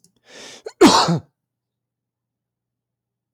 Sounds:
Sneeze